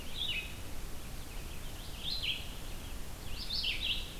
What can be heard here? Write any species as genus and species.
Vireo olivaceus